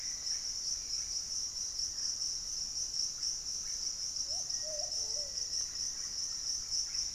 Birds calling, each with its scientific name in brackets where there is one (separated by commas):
Black-faced Antthrush (Formicarius analis), Hauxwell's Thrush (Turdus hauxwelli), Russet-backed Oropendola (Psarocolius angustifrons)